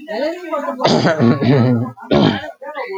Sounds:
Throat clearing